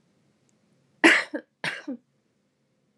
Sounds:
Cough